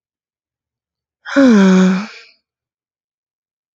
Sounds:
Sigh